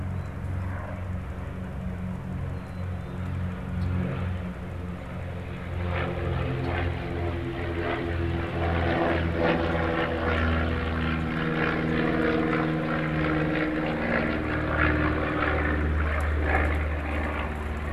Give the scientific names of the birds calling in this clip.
Poecile atricapillus, Agelaius phoeniceus